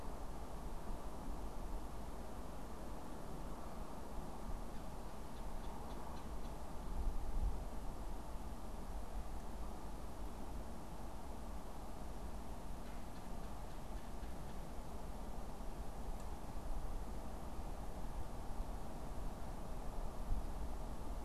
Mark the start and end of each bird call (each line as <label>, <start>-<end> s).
Red-bellied Woodpecker (Melanerpes carolinus), 5.1-6.7 s
Red-bellied Woodpecker (Melanerpes carolinus), 12.4-15.0 s